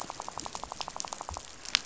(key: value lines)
label: biophony, rattle
recorder: SoundTrap 500